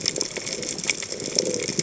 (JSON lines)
{"label": "biophony", "recorder": "HydroMoth"}